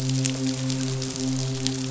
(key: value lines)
label: biophony, midshipman
recorder: SoundTrap 500